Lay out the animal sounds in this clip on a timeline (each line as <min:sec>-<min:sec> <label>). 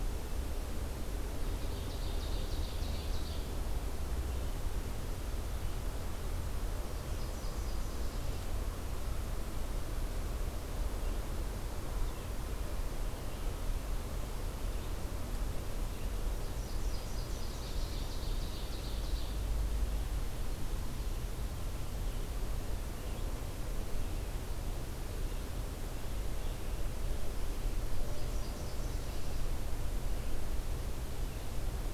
0:01.5-0:03.4 Ovenbird (Seiurus aurocapilla)
0:06.8-0:08.5 Nashville Warbler (Leiothlypis ruficapilla)
0:10.8-0:31.9 Red-eyed Vireo (Vireo olivaceus)
0:16.2-0:18.0 Nashville Warbler (Leiothlypis ruficapilla)
0:17.4-0:19.5 Ovenbird (Seiurus aurocapilla)
0:27.9-0:29.4 Nashville Warbler (Leiothlypis ruficapilla)